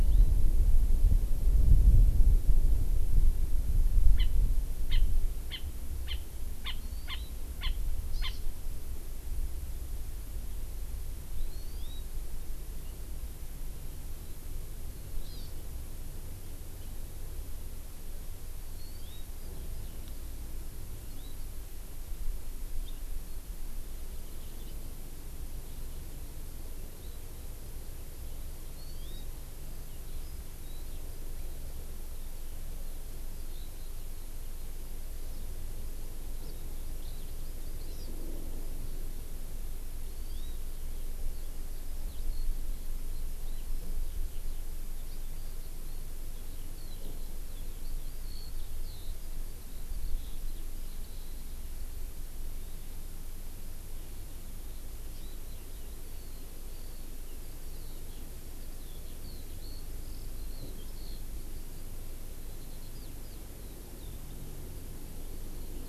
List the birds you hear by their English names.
Hawaii Amakihi, Eurasian Skylark